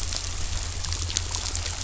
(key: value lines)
label: anthrophony, boat engine
recorder: SoundTrap 500